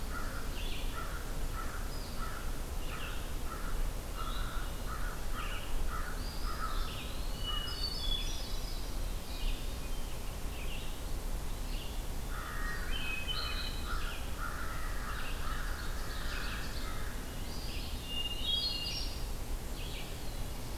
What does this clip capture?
American Crow, Red-eyed Vireo, Eastern Wood-Pewee, Hermit Thrush, Ovenbird, Black-throated Blue Warbler